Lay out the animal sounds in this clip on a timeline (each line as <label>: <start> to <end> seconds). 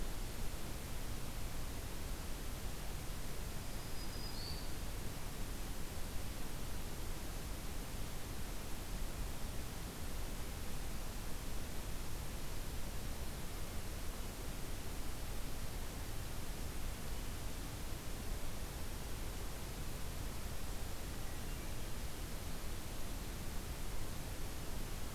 Black-throated Green Warbler (Setophaga virens): 3.4 to 4.8 seconds